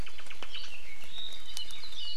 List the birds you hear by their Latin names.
Myadestes obscurus, Himatione sanguinea, Loxops coccineus